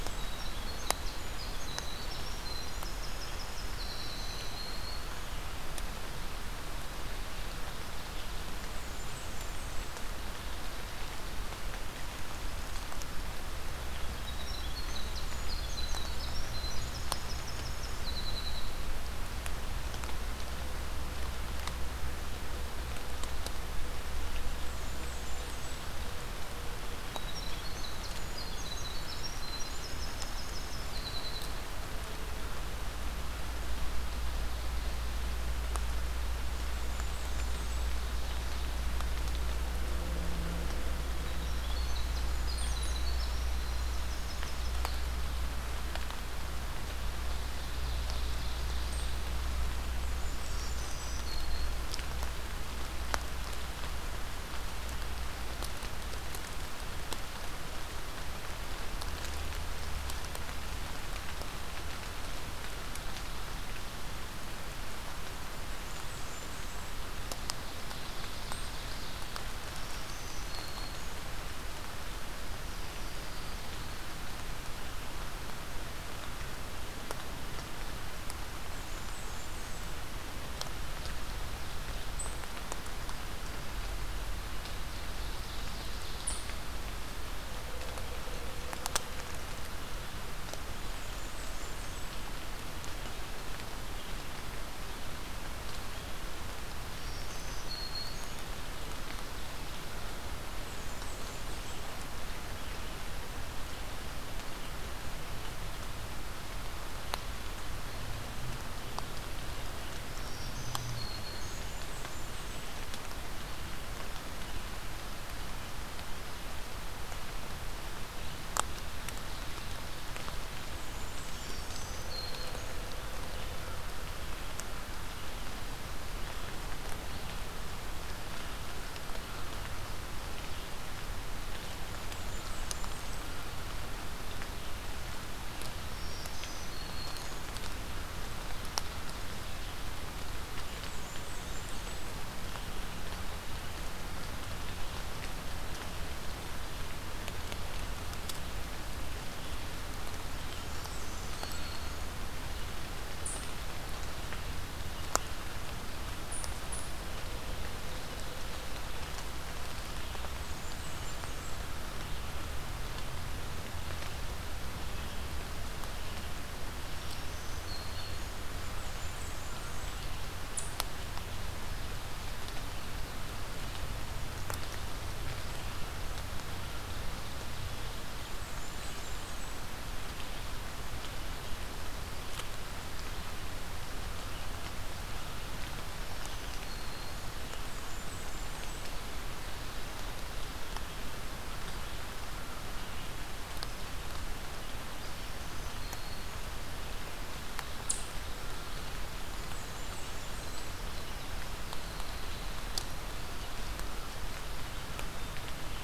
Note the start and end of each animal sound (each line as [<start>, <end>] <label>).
[0.20, 5.11] Winter Wren (Troglodytes hiemalis)
[3.71, 5.32] Black-throated Green Warbler (Setophaga virens)
[8.46, 10.19] Blackburnian Warbler (Setophaga fusca)
[13.67, 18.73] Winter Wren (Troglodytes hiemalis)
[24.32, 26.01] Blackburnian Warbler (Setophaga fusca)
[27.09, 31.69] Winter Wren (Troglodytes hiemalis)
[36.37, 37.94] Blackburnian Warbler (Setophaga fusca)
[41.03, 45.06] Winter Wren (Troglodytes hiemalis)
[47.54, 49.18] Ovenbird (Seiurus aurocapilla)
[49.83, 51.27] Blackburnian Warbler (Setophaga fusca)
[50.30, 51.93] Black-throated Green Warbler (Setophaga virens)
[65.46, 67.00] Blackburnian Warbler (Setophaga fusca)
[67.41, 69.28] Ovenbird (Seiurus aurocapilla)
[69.54, 71.38] Black-throated Green Warbler (Setophaga virens)
[78.52, 80.06] Blackburnian Warbler (Setophaga fusca)
[84.65, 86.67] Ovenbird (Seiurus aurocapilla)
[90.61, 92.30] Blackburnian Warbler (Setophaga fusca)
[96.92, 98.53] Black-throated Green Warbler (Setophaga virens)
[100.39, 101.92] Blackburnian Warbler (Setophaga fusca)
[110.14, 111.68] Black-throated Green Warbler (Setophaga virens)
[111.37, 112.76] Blackburnian Warbler (Setophaga fusca)
[120.34, 121.76] Blackburnian Warbler (Setophaga fusca)
[121.33, 122.81] Black-throated Green Warbler (Setophaga virens)
[131.94, 133.38] Blackburnian Warbler (Setophaga fusca)
[135.85, 137.48] Black-throated Green Warbler (Setophaga virens)
[140.58, 142.15] Blackburnian Warbler (Setophaga fusca)
[150.39, 151.63] Blackburnian Warbler (Setophaga fusca)
[150.69, 152.13] Black-throated Green Warbler (Setophaga virens)
[160.16, 161.81] Blackburnian Warbler (Setophaga fusca)
[166.87, 168.42] Black-throated Green Warbler (Setophaga virens)
[168.47, 169.98] Blackburnian Warbler (Setophaga fusca)
[178.01, 179.74] Blackburnian Warbler (Setophaga fusca)
[185.84, 187.41] Black-throated Green Warbler (Setophaga virens)
[187.43, 189.13] Blackburnian Warbler (Setophaga fusca)
[195.01, 196.58] Black-throated Green Warbler (Setophaga virens)
[199.05, 200.70] Blackburnian Warbler (Setophaga fusca)